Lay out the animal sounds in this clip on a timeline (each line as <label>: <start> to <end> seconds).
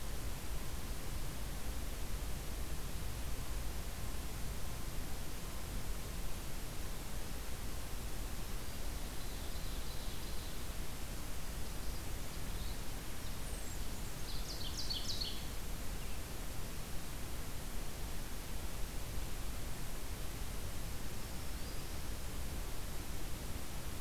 Ovenbird (Seiurus aurocapilla): 9.1 to 10.7 seconds
Ovenbird (Seiurus aurocapilla): 14.1 to 15.4 seconds
Black-throated Green Warbler (Setophaga virens): 20.9 to 22.1 seconds